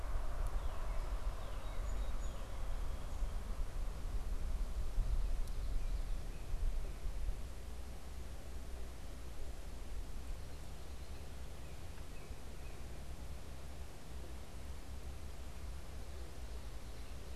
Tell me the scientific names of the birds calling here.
Cardinalis cardinalis, Melospiza melodia